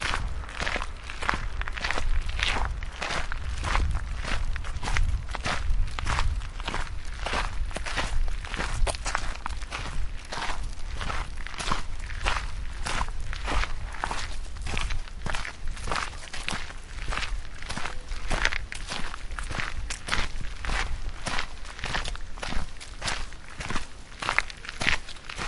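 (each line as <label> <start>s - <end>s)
Two men walking on a gravel path produce a rhythmic, crunching sound with each step. 0.0s - 25.5s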